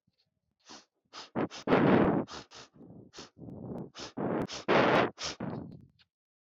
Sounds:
Sniff